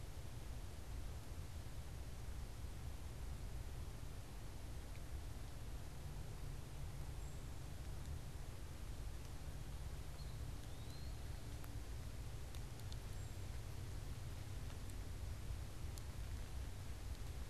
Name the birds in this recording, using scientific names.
unidentified bird, Contopus virens